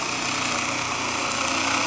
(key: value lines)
label: anthrophony, boat engine
recorder: SoundTrap 300